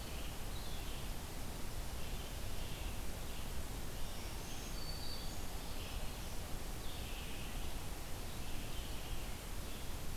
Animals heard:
Black-throated Green Warbler (Setophaga virens), Red-eyed Vireo (Vireo olivaceus)

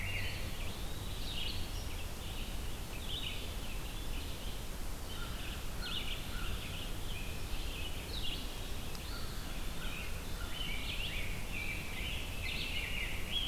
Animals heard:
American Crow (Corvus brachyrhynchos), Eastern Wood-Pewee (Contopus virens), Red-eyed Vireo (Vireo olivaceus), Rose-breasted Grosbeak (Pheucticus ludovicianus)

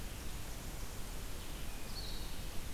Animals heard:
Blue-headed Vireo (Vireo solitarius)

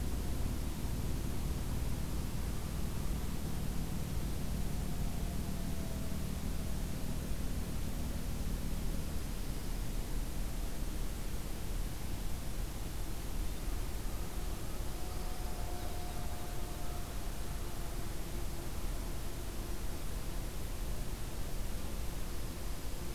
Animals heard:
American Crow (Corvus brachyrhynchos), Dark-eyed Junco (Junco hyemalis)

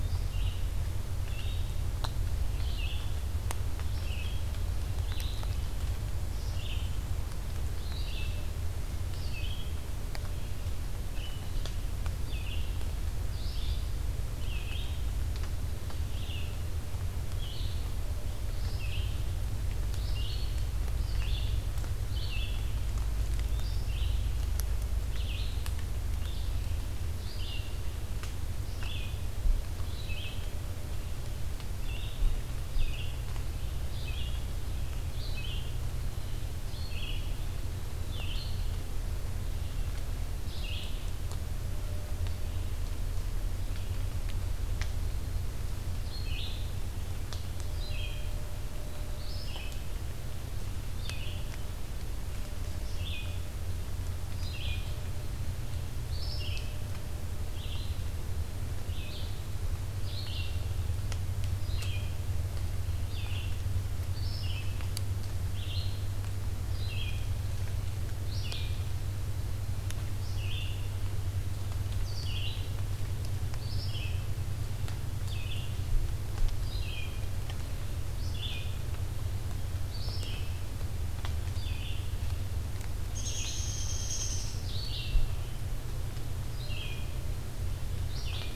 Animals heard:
Red-eyed Vireo (Vireo olivaceus), Downy Woodpecker (Dryobates pubescens)

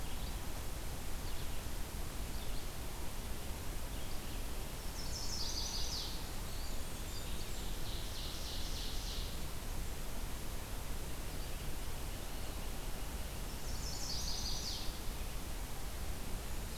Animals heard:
Red-eyed Vireo (Vireo olivaceus), Blackburnian Warbler (Setophaga fusca), Chestnut-sided Warbler (Setophaga pensylvanica), Eastern Wood-Pewee (Contopus virens), Ovenbird (Seiurus aurocapilla)

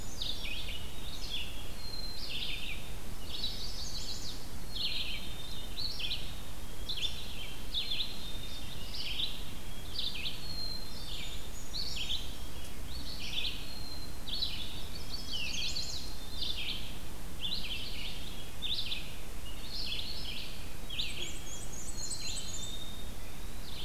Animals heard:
Black-and-white Warbler (Mniotilta varia), Red-eyed Vireo (Vireo olivaceus), Eastern Wood-Pewee (Contopus virens), Blackburnian Warbler (Setophaga fusca), Chestnut-sided Warbler (Setophaga pensylvanica), Black-capped Chickadee (Poecile atricapillus)

